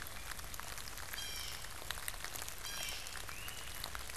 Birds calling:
Blue Jay (Cyanocitta cristata), Great Crested Flycatcher (Myiarchus crinitus)

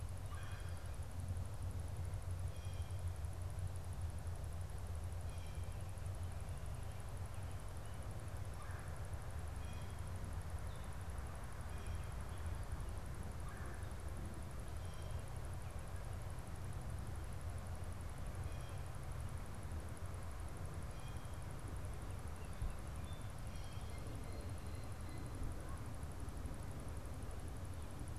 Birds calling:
Red-bellied Woodpecker (Melanerpes carolinus), Blue Jay (Cyanocitta cristata)

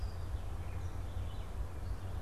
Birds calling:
Red-eyed Vireo (Vireo olivaceus), unidentified bird

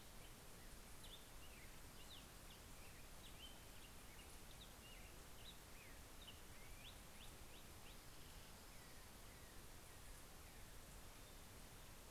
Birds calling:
Black-headed Grosbeak (Pheucticus melanocephalus)

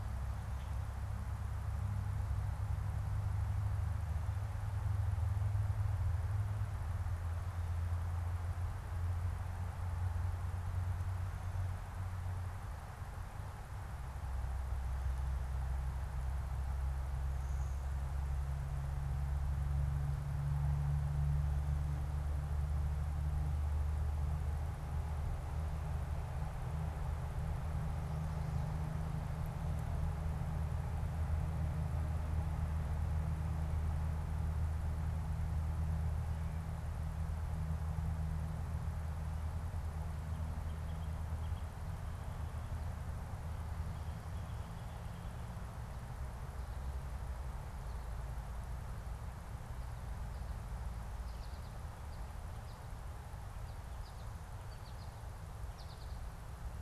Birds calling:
unidentified bird, American Goldfinch (Spinus tristis), Blue-winged Warbler (Vermivora cyanoptera)

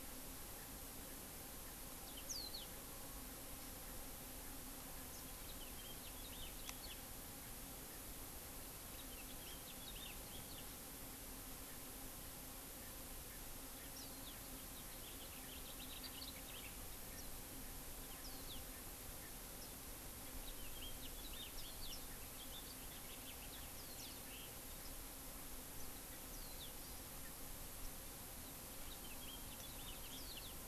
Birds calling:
Hawaii Amakihi (Chlorodrepanis virens), House Finch (Haemorhous mexicanus), Warbling White-eye (Zosterops japonicus), Erckel's Francolin (Pternistis erckelii)

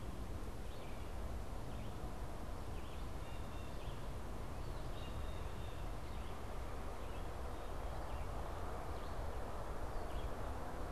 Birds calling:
Blue Jay (Cyanocitta cristata), Red-eyed Vireo (Vireo olivaceus)

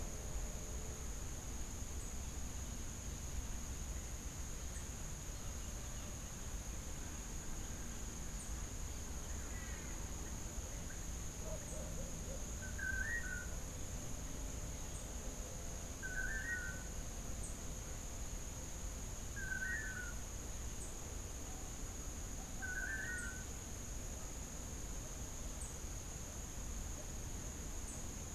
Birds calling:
Tennessee Warbler (Leiothlypis peregrina), Long-tailed Manakin (Chiroxiphia linearis)

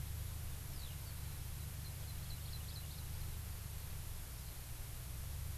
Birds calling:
Hawaii Amakihi (Chlorodrepanis virens), Eurasian Skylark (Alauda arvensis)

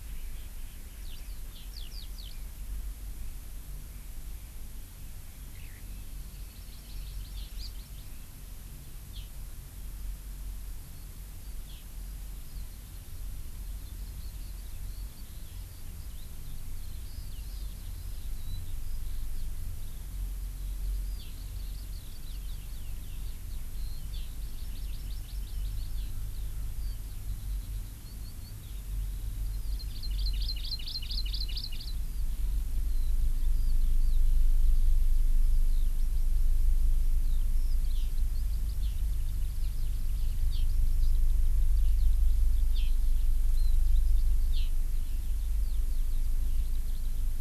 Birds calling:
Eurasian Skylark (Alauda arvensis), Hawaii Amakihi (Chlorodrepanis virens)

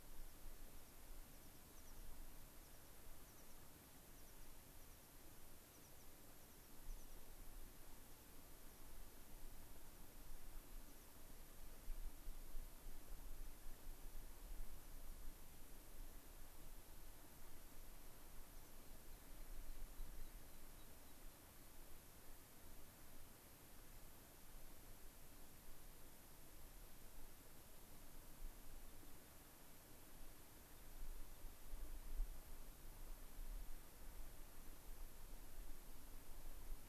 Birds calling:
American Pipit (Anthus rubescens), unidentified bird

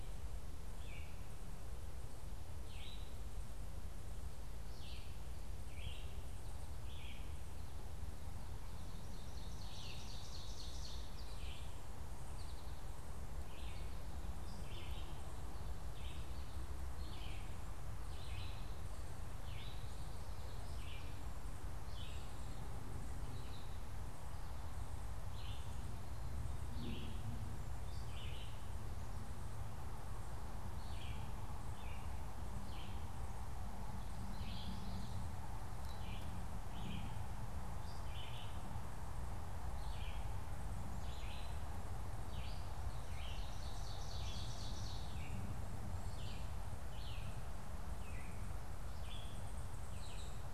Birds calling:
Red-eyed Vireo (Vireo olivaceus), Ovenbird (Seiurus aurocapilla), unidentified bird, Common Yellowthroat (Geothlypis trichas), American Goldfinch (Spinus tristis)

